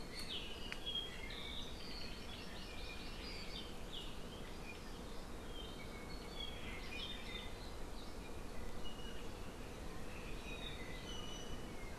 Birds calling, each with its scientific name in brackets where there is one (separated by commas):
Apapane (Himatione sanguinea), Hawaii Amakihi (Chlorodrepanis virens)